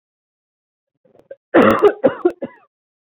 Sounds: Cough